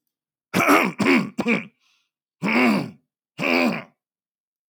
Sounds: Throat clearing